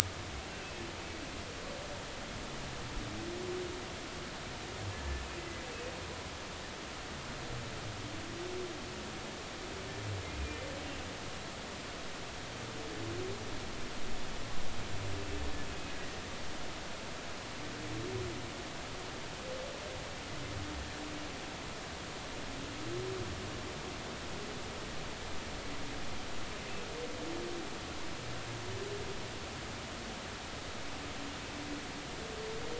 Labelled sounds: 0.5	0.7	humpback whale, 2.5 to 2.8 kHz
4.9	5.2	humpback whale, 1.7 to 1.8 kHz
15.9	16.2	humpback whale, 1.8 to 2.0 kHz

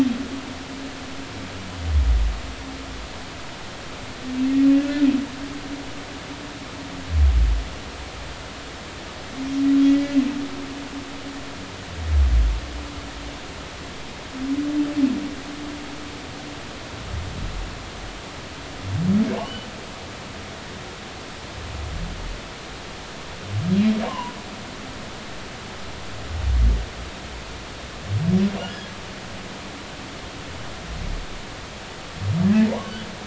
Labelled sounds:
9.9	10.2	humpback whale, 1.9 to 2.0 kHz
19.4	19.7	humpback whale, 2.7 to 3.1 kHz
24.0	24.4	humpback whale, 0.80 to 3.0 kHz
28.7	28.9	humpback whale, 1.6 to 1.8 kHz
32.4	32.9	humpback whale, 0.86 to 2.0 kHz

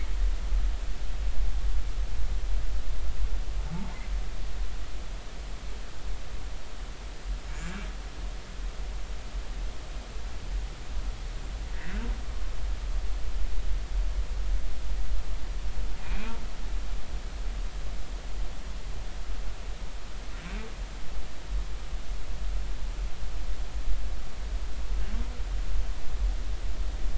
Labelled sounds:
3.7	4.0	humpback whale, 0.80 to 1.1 kHz
16.0	16.3	humpback whale, 2.2 to 2.6 kHz

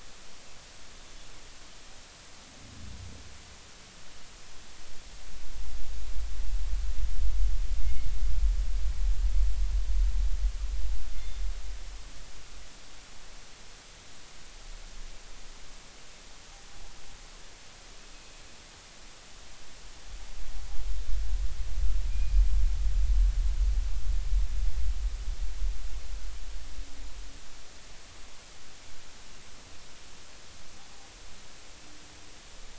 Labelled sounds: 7.8	8.1	killer whale, northern resident, G clan, call N24ii, 2.1 to 2.2 kHz
11.2	11.4	killer whale, northern resident, G clan, call N24ii, 3.5 to 3.6 kHz
22.1	22.3	killer whale, northern resident, G clan, call N24ii, 2.4 to 2.5 kHz

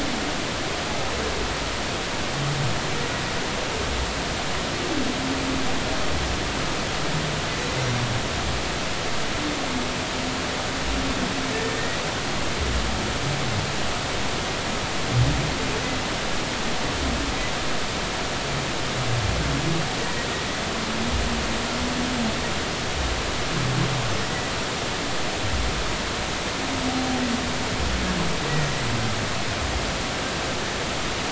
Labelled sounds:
11.5	12.0	humpback whale, 1.7 to 2.0 kHz

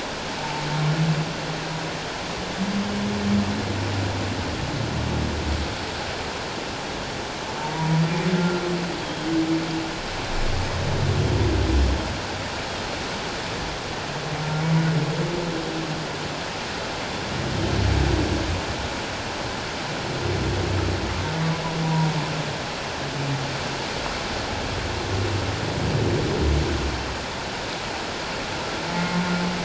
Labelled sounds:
7.6	8.6	humpback whale, 0.84 to 1.5 kHz
21.8	22.2	humpback whale, 0.88 to 1.0 kHz
28.9	29.2	humpback whale, 1.9 to 2.0 kHz

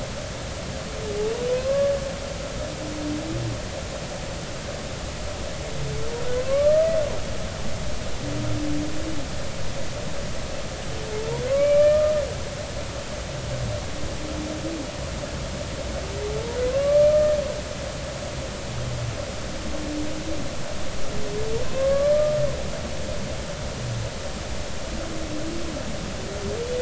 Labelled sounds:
1.5	1.9	humpback whale, 0.99 to 1.2 kHz
6.4	6.9	humpback whale, 1.0 to 1.3 kHz
11.5	12.2	humpback whale, 1.1 to 2.5 kHz
16.6	17.4	humpback whale, 0.99 to 2.4 kHz
21.7	22.1	humpback whale, 1.0 to 1.2 kHz

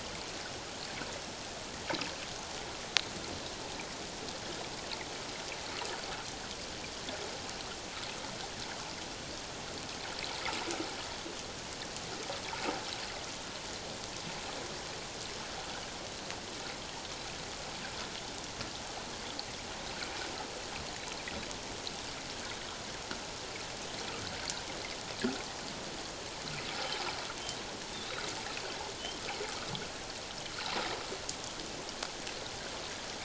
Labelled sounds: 27.9	28.2	humpback whale, 3.4 to 3.9 kHz

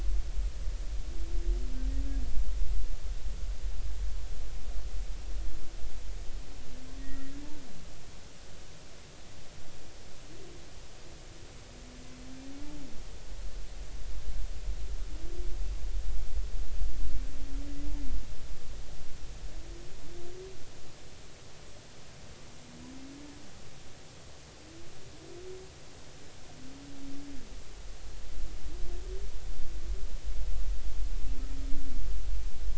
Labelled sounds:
7.0	7.3	humpback whale, 1.8 to 2.0 kHz

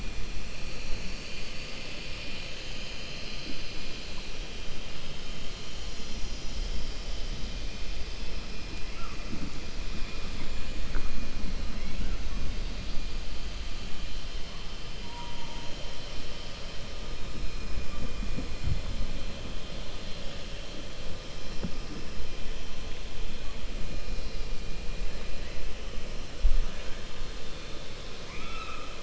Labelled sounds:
28.2	28.9	killer whale, 1.1 to 5.4 kHz

